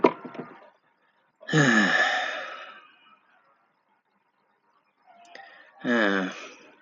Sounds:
Sigh